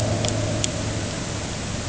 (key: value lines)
label: anthrophony, boat engine
recorder: HydroMoth